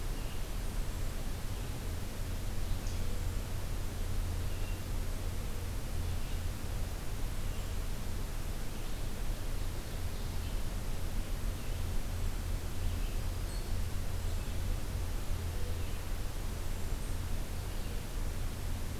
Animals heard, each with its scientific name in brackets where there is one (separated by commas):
Ovenbird (Seiurus aurocapilla), Hermit Thrush (Catharus guttatus), Red-eyed Vireo (Vireo olivaceus)